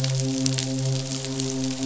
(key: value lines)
label: biophony, midshipman
recorder: SoundTrap 500